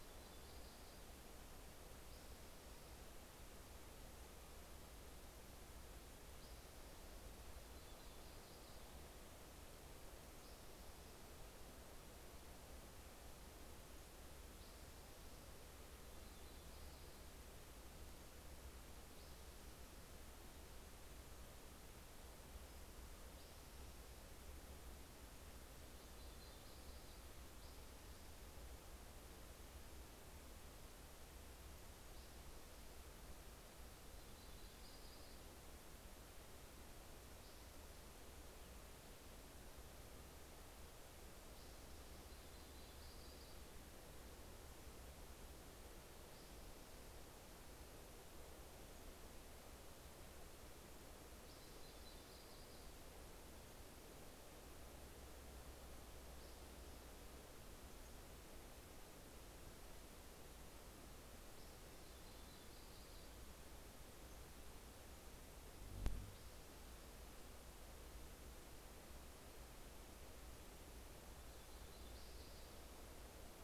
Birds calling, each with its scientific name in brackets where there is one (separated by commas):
Pacific-slope Flycatcher (Empidonax difficilis), Yellow-rumped Warbler (Setophaga coronata), Spotted Towhee (Pipilo maculatus)